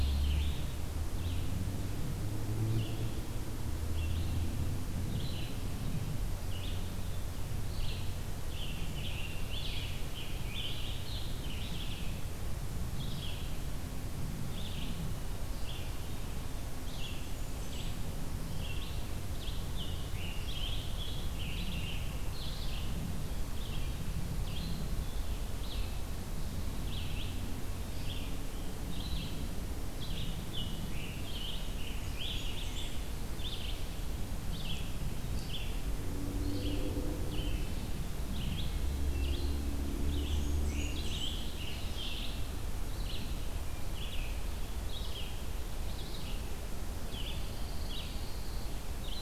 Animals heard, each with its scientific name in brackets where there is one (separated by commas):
Pine Warbler (Setophaga pinus), Scarlet Tanager (Piranga olivacea), Blackburnian Warbler (Setophaga fusca), Hermit Thrush (Catharus guttatus), Red-eyed Vireo (Vireo olivaceus)